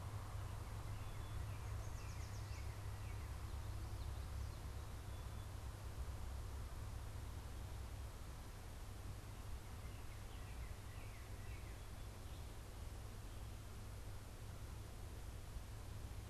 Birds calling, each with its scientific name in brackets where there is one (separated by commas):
Yellow Warbler (Setophaga petechia), Northern Cardinal (Cardinalis cardinalis)